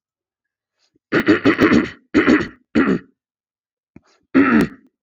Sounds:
Throat clearing